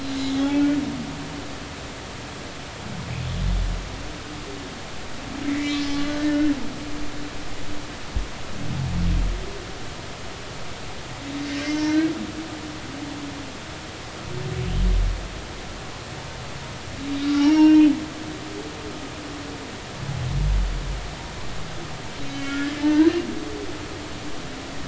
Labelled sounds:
0.3	0.6	humpback whale, 0.80 to 3.5 kHz
5.5	6.0	humpback whale, 1.9 to 3.6 kHz
17.2	17.9	humpback whale, 1.3 to 5.7 kHz
22.3	23.1	humpback whale, 0.83 to 3.1 kHz

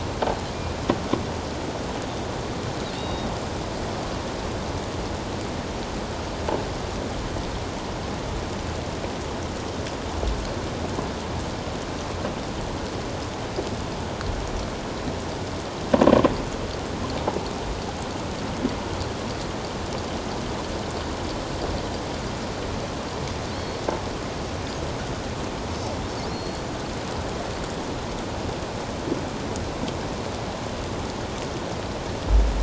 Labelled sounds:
3.0	3.3	killer whale, offshore, 3.6 to 4.8 kHz
23.6	23.8	killer whale, offshore, 4.3 to 4.4 kHz
26.3	26.7	killer whale, offshore, 4.1 to 4.4 kHz

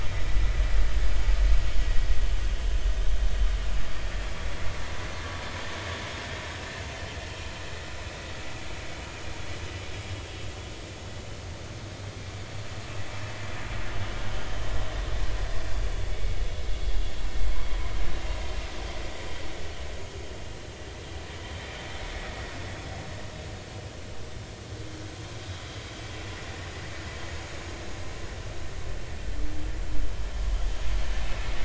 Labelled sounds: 16.1	16.4	vessel noise, 2.1 to 2.3 kHz

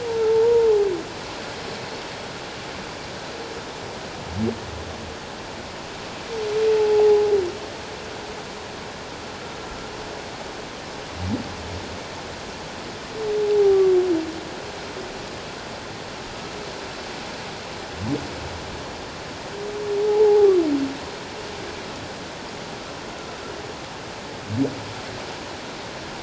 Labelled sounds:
6.7	7.3	humpback whale, 0.78 to 0.91 kHz
13.4	13.8	humpback whale, 0.78 to 0.91 kHz
20.0	20.5	humpback whale, 0.78 to 0.97 kHz

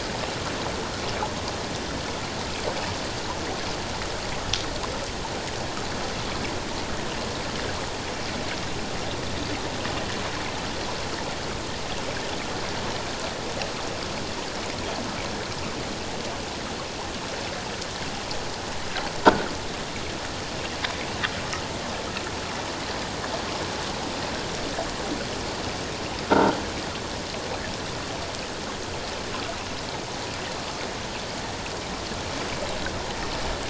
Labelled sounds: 26.3	26.6	croaking sound likely from a nearby submerged object, 1.3 to 1.6 kHz

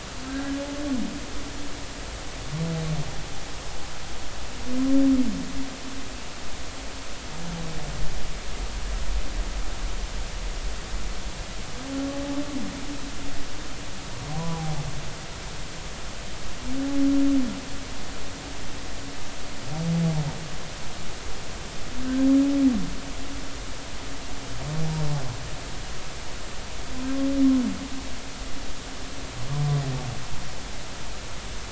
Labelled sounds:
0.2	0.6	humpback whale, 1.5 to 1.7 kHz

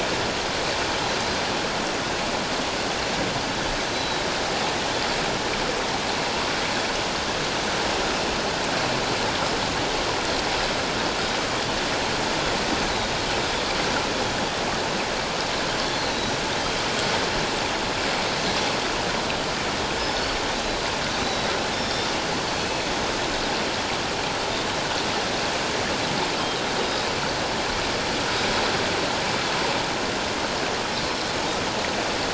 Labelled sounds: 3.8	4.2	Pacific white-sided dolphin, 3.8 to 6.4 kHz
16.0	16.3	Pacific white-sided dolphin, 3.8 to 4.0 kHz
20.0	22.8	Pacific white-sided dolphin, 2.4 to 5.5 kHz
26.8	27.1	Pacific white-sided dolphin, 3.7 to 3.9 kHz

